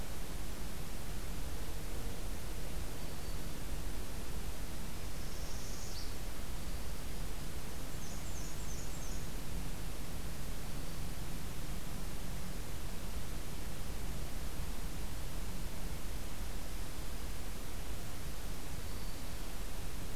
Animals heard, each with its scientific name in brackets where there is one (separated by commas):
Black-throated Green Warbler (Setophaga virens), Black-and-white Warbler (Mniotilta varia), Northern Parula (Setophaga americana)